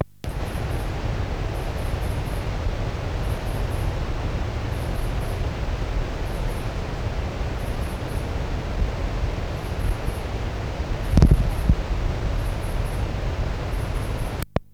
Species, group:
Tettigonia viridissima
Orthoptera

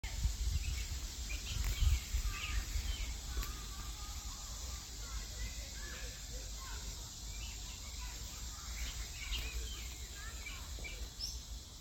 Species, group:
Neotibicen lyricen
Cicadidae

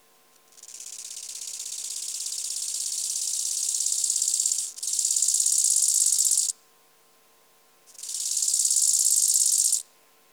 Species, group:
Chorthippus biguttulus
Orthoptera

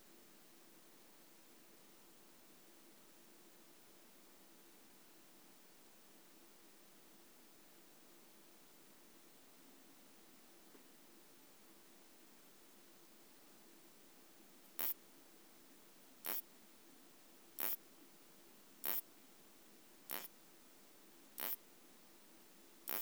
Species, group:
Isophya clara
Orthoptera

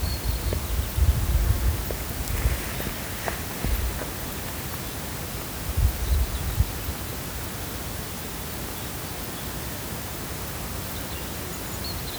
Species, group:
Cicadetta cantilatrix
Cicadidae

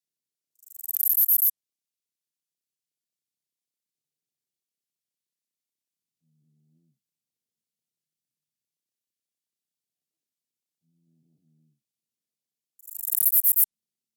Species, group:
Callicrania ramburii
Orthoptera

